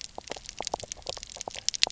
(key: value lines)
label: biophony, knock croak
recorder: SoundTrap 300